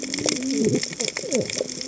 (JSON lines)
{"label": "biophony, cascading saw", "recorder": "HydroMoth"}